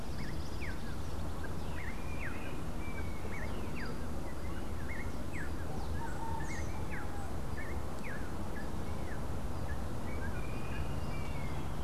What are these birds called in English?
Rufous-naped Wren